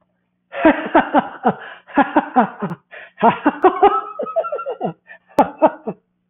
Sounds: Laughter